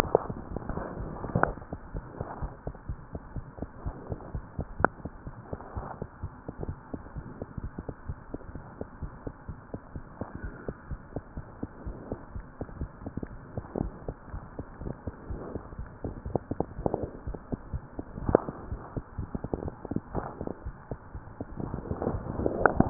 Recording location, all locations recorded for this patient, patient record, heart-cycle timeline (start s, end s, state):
mitral valve (MV)
aortic valve (AV)+pulmonary valve (PV)+tricuspid valve (TV)+mitral valve (MV)
#Age: Child
#Sex: Male
#Height: 76.0 cm
#Weight: 9.4 kg
#Pregnancy status: False
#Murmur: Present
#Murmur locations: mitral valve (MV)+tricuspid valve (TV)
#Most audible location: tricuspid valve (TV)
#Systolic murmur timing: Early-systolic
#Systolic murmur shape: Decrescendo
#Systolic murmur grading: I/VI
#Systolic murmur pitch: Low
#Systolic murmur quality: Blowing
#Diastolic murmur timing: nan
#Diastolic murmur shape: nan
#Diastolic murmur grading: nan
#Diastolic murmur pitch: nan
#Diastolic murmur quality: nan
#Outcome: Abnormal
#Campaign: 2015 screening campaign
0.00	1.78	unannotated
1.78	1.94	diastole
1.94	2.08	S1
2.08	2.19	systole
2.19	2.25	S2
2.25	2.40	diastole
2.40	2.54	S1
2.54	2.66	systole
2.66	2.74	S2
2.74	2.88	diastole
2.88	2.98	S1
2.98	3.12	systole
3.12	3.22	S2
3.22	3.34	diastole
3.34	3.44	S1
3.44	3.58	systole
3.58	3.70	S2
3.70	3.84	diastole
3.84	3.94	S1
3.94	4.08	systole
4.08	4.18	S2
4.18	4.32	diastole
4.32	4.44	S1
4.44	4.56	systole
4.56	4.66	S2
4.66	4.78	diastole
4.78	4.92	S1
4.92	5.04	systole
5.04	5.12	S2
5.12	5.26	diastole
5.26	5.34	S1
5.34	5.48	systole
5.48	5.58	S2
5.58	5.74	diastole
5.74	5.84	S1
5.84	6.00	systole
6.00	6.08	S2
6.08	6.22	diastole
6.22	6.32	S1
6.32	6.47	systole
6.47	6.52	S2
6.52	6.67	diastole
6.67	6.76	S1
6.76	6.90	systole
6.90	7.02	S2
7.02	7.16	diastole
7.16	7.28	S1
7.28	7.40	systole
7.40	7.48	S2
7.48	7.62	diastole
7.62	7.74	S1
7.74	7.86	systole
7.86	7.94	S2
7.94	8.08	diastole
8.08	8.18	S1
8.18	8.30	systole
8.30	8.40	S2
8.40	8.56	diastole
8.56	8.64	S1
8.64	8.78	systole
8.78	8.88	S2
8.88	9.02	diastole
9.02	9.12	S1
9.12	9.24	systole
9.24	9.34	S2
9.34	9.48	diastole
9.48	9.56	S1
9.56	9.70	systole
9.70	9.80	S2
9.80	9.96	diastole
9.96	10.04	S1
10.04	10.20	systole
10.20	10.28	S2
10.28	10.42	diastole
10.42	10.52	S1
10.52	10.66	systole
10.66	10.76	S2
10.76	10.90	diastole
10.90	11.00	S1
11.00	11.12	systole
11.12	11.22	S2
11.22	11.36	diastole
11.36	11.44	S1
11.44	11.58	systole
11.58	11.72	S2
11.72	11.86	diastole
11.86	11.98	S1
11.98	12.10	systole
12.10	12.20	S2
12.20	12.34	diastole
12.34	12.46	S1
12.46	12.56	systole
12.56	12.66	S2
12.66	12.78	diastole
12.78	12.90	S1
12.90	13.02	systole
13.02	13.14	S2
13.14	13.32	diastole
13.32	13.42	S1
13.42	13.56	systole
13.56	13.66	S2
13.66	13.82	diastole
13.82	13.94	S1
13.94	14.06	systole
14.06	14.16	S2
14.16	14.32	diastole
14.32	14.44	S1
14.44	14.58	systole
14.58	14.66	S2
14.66	14.82	diastole
14.82	14.94	S1
14.94	15.06	systole
15.06	15.14	S2
15.14	15.28	diastole
15.28	15.42	S1
15.42	15.54	systole
15.54	15.64	S2
15.64	15.80	diastole
15.80	15.90	S1
15.90	16.04	systole
16.04	16.16	S2
16.16	16.23	diastole
16.23	16.34	S1
16.34	16.48	systole
16.48	16.56	S2
16.56	16.76	diastole
16.76	22.90	unannotated